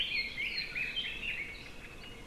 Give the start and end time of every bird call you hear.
0.0s-2.2s: Red-billed Leiothrix (Leiothrix lutea)

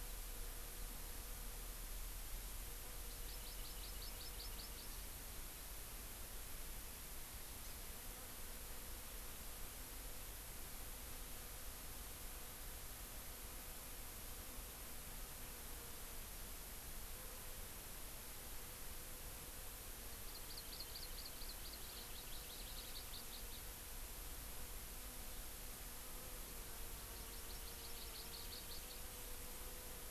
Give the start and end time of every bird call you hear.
3.0s-5.0s: Hawaii Amakihi (Chlorodrepanis virens)
20.3s-23.6s: Hawaii Amakihi (Chlorodrepanis virens)
27.2s-29.0s: Hawaii Amakihi (Chlorodrepanis virens)

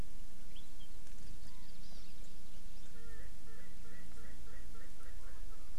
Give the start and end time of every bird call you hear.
1.1s-2.1s: Hawaii Amakihi (Chlorodrepanis virens)
1.4s-1.7s: Chinese Hwamei (Garrulax canorus)
2.9s-5.7s: Erckel's Francolin (Pternistis erckelii)

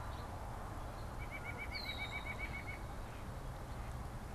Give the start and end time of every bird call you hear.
0.0s-1.2s: House Finch (Haemorhous mexicanus)
1.1s-3.1s: White-breasted Nuthatch (Sitta carolinensis)

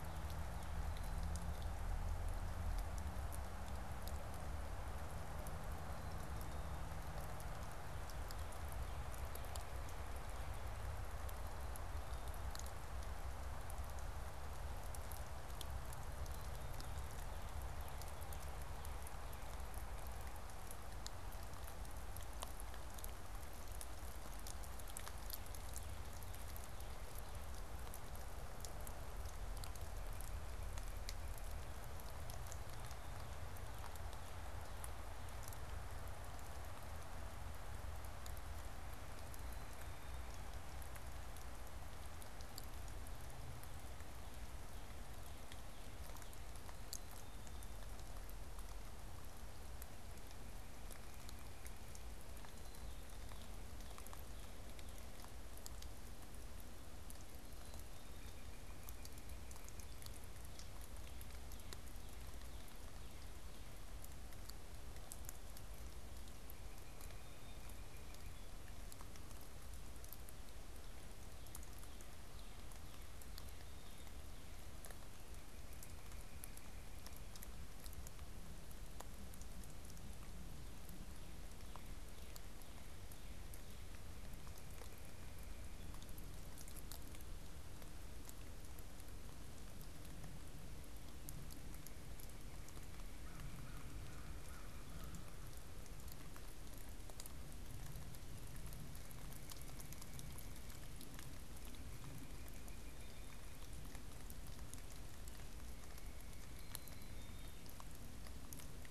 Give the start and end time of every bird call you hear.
16.2s-17.0s: Black-capped Chickadee (Poecile atricapillus)
29.5s-31.6s: White-breasted Nuthatch (Sitta carolinensis)
46.7s-47.8s: Black-capped Chickadee (Poecile atricapillus)
50.1s-51.9s: White-breasted Nuthatch (Sitta carolinensis)
57.5s-58.4s: Black-capped Chickadee (Poecile atricapillus)
58.0s-60.0s: unidentified bird
66.5s-68.4s: unidentified bird
66.7s-67.7s: Black-capped Chickadee (Poecile atricapillus)
73.2s-74.2s: Black-capped Chickadee (Poecile atricapillus)
93.1s-95.4s: American Crow (Corvus brachyrhynchos)
101.5s-103.4s: unidentified bird
105.3s-107.4s: unidentified bird
106.4s-107.6s: Black-capped Chickadee (Poecile atricapillus)

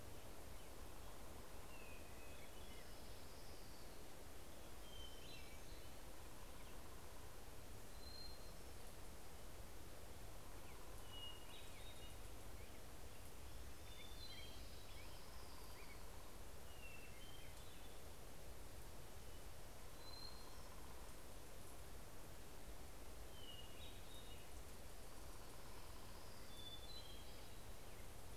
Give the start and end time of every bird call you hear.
0.6s-3.9s: Hermit Thrush (Catharus guttatus)
2.2s-4.6s: Orange-crowned Warbler (Leiothlypis celata)
4.6s-6.4s: Hermit Warbler (Setophaga occidentalis)
4.9s-7.4s: Hermit Thrush (Catharus guttatus)
7.8s-8.9s: Hermit Thrush (Catharus guttatus)
10.8s-12.2s: Hermit Thrush (Catharus guttatus)
12.4s-17.1s: Black-headed Grosbeak (Pheucticus melanocephalus)
13.9s-15.1s: Hermit Thrush (Catharus guttatus)
14.5s-17.4s: Orange-crowned Warbler (Leiothlypis celata)
16.3s-18.2s: Hermit Thrush (Catharus guttatus)
19.3s-21.5s: Hermit Thrush (Catharus guttatus)
22.8s-24.8s: Hermit Thrush (Catharus guttatus)
24.6s-27.3s: Orange-crowned Warbler (Leiothlypis celata)
26.5s-27.8s: Hermit Thrush (Catharus guttatus)

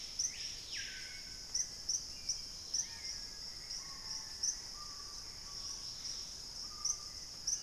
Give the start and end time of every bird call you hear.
0.0s-7.6s: Hauxwell's Thrush (Turdus hauxwelli)
0.0s-7.6s: Screaming Piha (Lipaugus vociferans)
2.1s-7.6s: Dusky-capped Greenlet (Pachysylvia hypoxantha)
2.6s-5.0s: Black-faced Antthrush (Formicarius analis)
4.3s-6.6s: Gray Antbird (Cercomacra cinerascens)

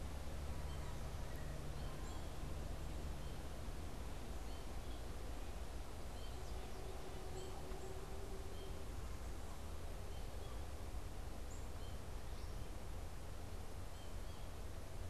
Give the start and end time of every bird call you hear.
0.0s-15.1s: American Goldfinch (Spinus tristis)
7.2s-11.7s: Black-capped Chickadee (Poecile atricapillus)

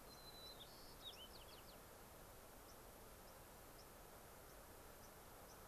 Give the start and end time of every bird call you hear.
0.0s-1.8s: White-crowned Sparrow (Zonotrichia leucophrys)
2.7s-2.8s: White-crowned Sparrow (Zonotrichia leucophrys)
3.2s-3.3s: White-crowned Sparrow (Zonotrichia leucophrys)
3.8s-3.9s: White-crowned Sparrow (Zonotrichia leucophrys)
4.4s-4.6s: White-crowned Sparrow (Zonotrichia leucophrys)
5.0s-5.1s: White-crowned Sparrow (Zonotrichia leucophrys)
5.5s-5.6s: White-crowned Sparrow (Zonotrichia leucophrys)

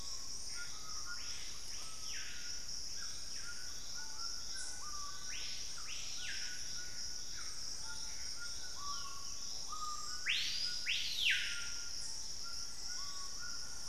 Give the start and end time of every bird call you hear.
0.0s-1.1s: Gray Antbird (Cercomacra cinerascens)
0.0s-13.9s: Screaming Piha (Lipaugus vociferans)
0.0s-13.9s: White-throated Toucan (Ramphastos tucanus)
5.9s-8.7s: Gray Antbird (Cercomacra cinerascens)
12.6s-13.6s: Black-faced Cotinga (Conioptilon mcilhennyi)

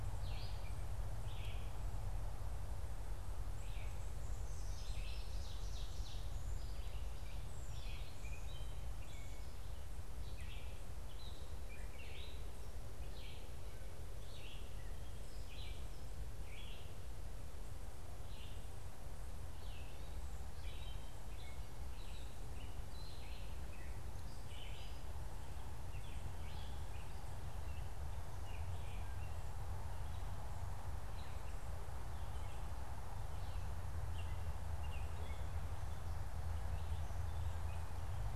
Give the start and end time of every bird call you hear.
0.0s-1.0s: Gray Catbird (Dumetella carolinensis)
0.0s-29.4s: Red-eyed Vireo (Vireo olivaceus)
3.4s-8.3s: Ovenbird (Seiurus aurocapilla)
20.3s-38.1s: Gray Catbird (Dumetella carolinensis)

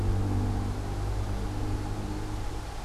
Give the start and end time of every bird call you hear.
0.0s-2.8s: Gray Catbird (Dumetella carolinensis)

